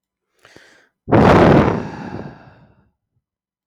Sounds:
Sigh